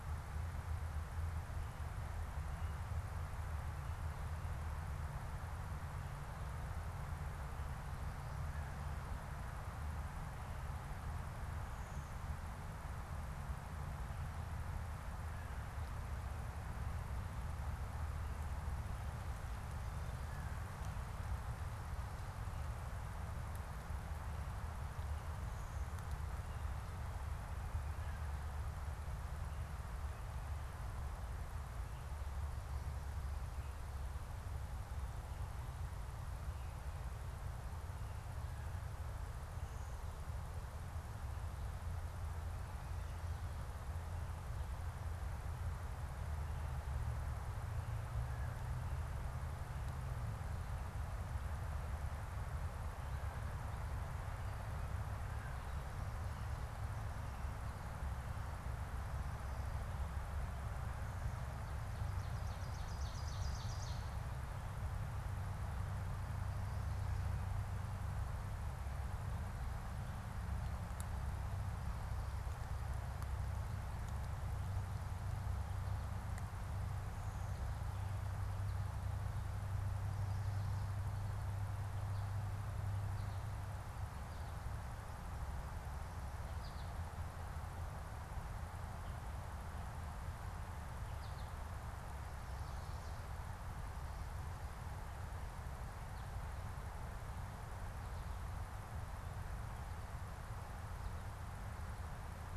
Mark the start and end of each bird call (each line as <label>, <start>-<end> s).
American Crow (Corvus brachyrhynchos), 54.8-56.1 s
Ovenbird (Seiurus aurocapilla), 60.8-64.3 s
American Goldfinch (Spinus tristis), 86.3-91.8 s